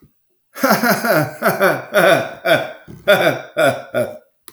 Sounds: Laughter